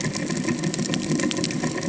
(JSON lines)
{"label": "ambient", "recorder": "HydroMoth"}